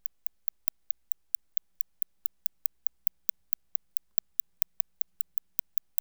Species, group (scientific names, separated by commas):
Cyrtaspis scutata, Orthoptera